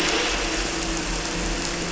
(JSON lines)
{"label": "anthrophony, boat engine", "recorder": "SoundTrap 300"}